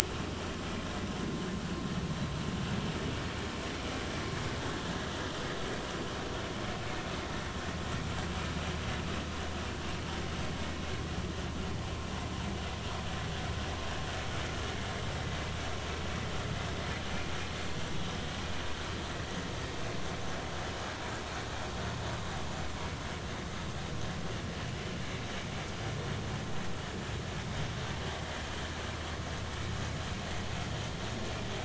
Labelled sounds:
0.0	0.4	vessel noise, 1.0 to 3.0 kHz

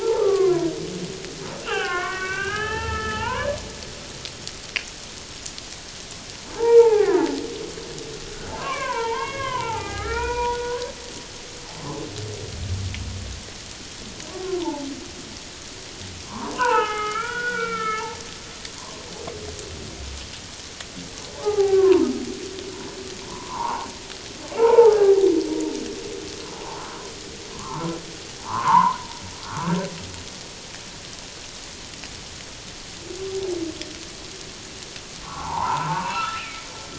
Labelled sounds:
0.0	0.7	humpback whale, 0.78 to 1.4 kHz
1.6	3.5	humpback whale, 0.78 to 3.2 kHz
6.6	7.3	humpback whale, 0.78 to 2.4 kHz
8.5	10.9	humpback whale, 0.78 to 3.3 kHz
14.3	14.9	humpback whale, 0.81 to 1.2 kHz
16.2	18.1	humpback whale, 0.78 to 3.2 kHz
18.7	19.1	humpback whale, 0.97 to 1.2 kHz
21.3	22.1	humpback whale, 0.78 to 1.6 kHz
23.3	23.9	humpback whale, 0.78 to 1.5 kHz
24.6	25.3	humpback whale, 0.78 to 1.5 kHz
27.5	27.9	humpback whale, 0.84 to 1.4 kHz
28.4	29.0	humpback whale, 0.78 to 1.6 kHz
29.4	29.7	humpback whale, 0.88 to 1.6 kHz
35.2	36.7	humpback whale, 0.78 to 2.8 kHz

